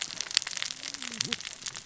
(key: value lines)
label: biophony, cascading saw
recorder: SoundTrap 600 or HydroMoth